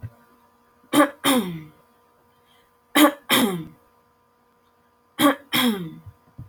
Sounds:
Throat clearing